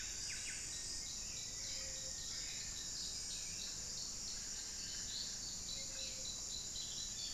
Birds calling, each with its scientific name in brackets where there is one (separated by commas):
Hauxwell's Thrush (Turdus hauxwelli), Buff-breasted Wren (Cantorchilus leucotis), unidentified bird, Ruddy Quail-Dove (Geotrygon montana), Black-faced Antthrush (Formicarius analis)